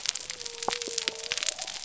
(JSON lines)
{"label": "biophony", "recorder": "SoundTrap 300"}